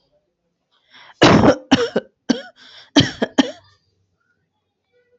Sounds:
Cough